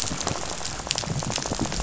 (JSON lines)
{"label": "biophony, rattle", "recorder": "SoundTrap 500"}